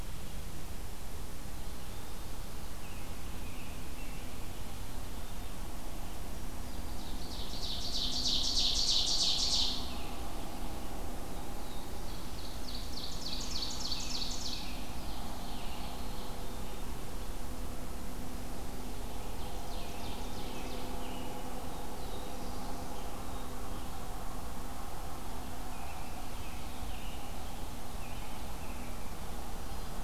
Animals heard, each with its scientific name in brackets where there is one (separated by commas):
Ovenbird (Seiurus aurocapilla), American Robin (Turdus migratorius), Black-throated Blue Warbler (Setophaga caerulescens), Black-capped Chickadee (Poecile atricapillus)